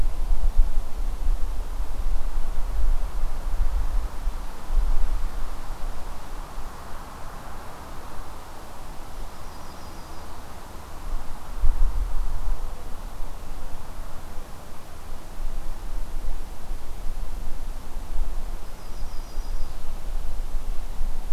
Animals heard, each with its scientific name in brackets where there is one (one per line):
Yellow-rumped Warbler (Setophaga coronata)